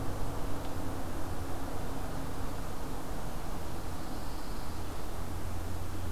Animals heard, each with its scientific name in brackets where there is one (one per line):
Pine Warbler (Setophaga pinus)